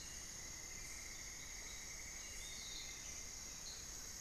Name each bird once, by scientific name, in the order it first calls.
Dendrexetastes rufigula, Turdus hauxwelli, Legatus leucophaius